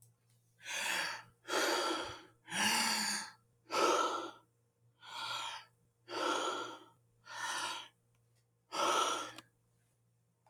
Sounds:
Sigh